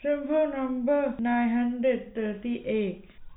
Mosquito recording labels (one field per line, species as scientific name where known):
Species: no mosquito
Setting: cup